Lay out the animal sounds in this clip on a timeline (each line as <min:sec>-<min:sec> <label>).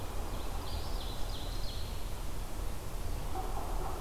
0:00.0-0:01.9 Ovenbird (Seiurus aurocapilla)
0:00.3-0:02.0 Eastern Wood-Pewee (Contopus virens)